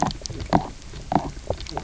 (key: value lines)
label: biophony, knock croak
recorder: SoundTrap 300